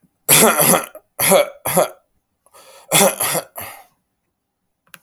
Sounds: Throat clearing